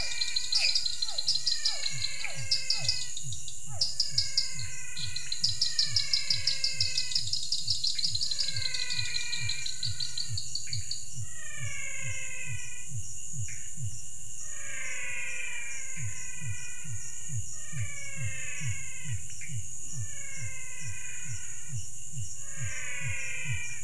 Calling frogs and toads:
Physalaemus cuvieri, pointedbelly frog (Leptodactylus podicipinus), dwarf tree frog (Dendropsophus nanus), menwig frog (Physalaemus albonotatus), Pithecopus azureus
7:30pm

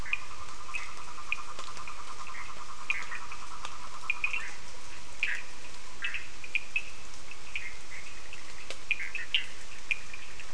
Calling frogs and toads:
yellow cururu toad (Rhinella icterica), Cochran's lime tree frog (Sphaenorhynchus surdus), Bischoff's tree frog (Boana bischoffi)
5:30am

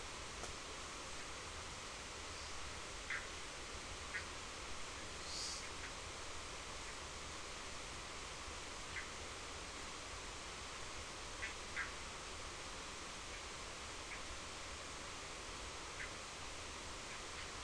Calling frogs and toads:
Bischoff's tree frog (Boana bischoffi)
5am

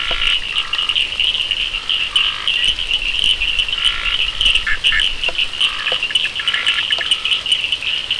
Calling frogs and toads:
Scinax perereca, Cochran's lime tree frog (Sphaenorhynchus surdus), Bischoff's tree frog (Boana bischoffi)
9pm

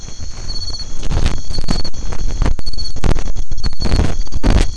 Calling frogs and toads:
none
8pm

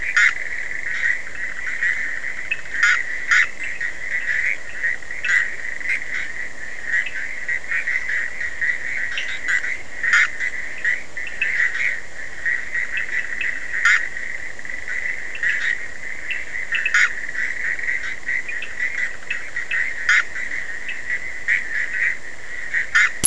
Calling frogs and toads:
Physalaemus cuvieri, Bischoff's tree frog (Boana bischoffi), Cochran's lime tree frog (Sphaenorhynchus surdus)
3:30am

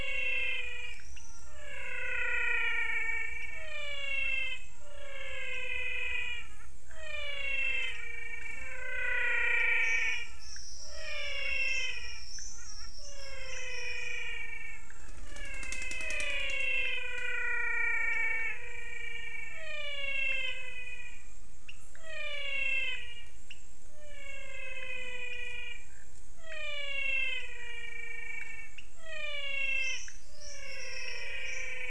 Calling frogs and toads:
pointedbelly frog (Leptodactylus podicipinus), menwig frog (Physalaemus albonotatus)
~6pm

